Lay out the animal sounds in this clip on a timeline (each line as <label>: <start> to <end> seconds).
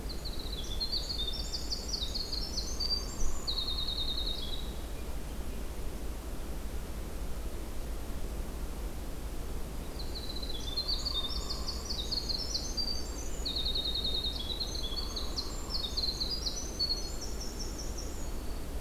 Winter Wren (Troglodytes hiemalis): 0.0 to 4.9 seconds
Hairy Woodpecker (Dryobates villosus): 2.6 to 3.9 seconds
Winter Wren (Troglodytes hiemalis): 9.8 to 18.4 seconds
Hairy Woodpecker (Dryobates villosus): 10.8 to 11.9 seconds
Hairy Woodpecker (Dryobates villosus): 14.8 to 16.1 seconds
Black-throated Green Warbler (Setophaga virens): 18.1 to 18.8 seconds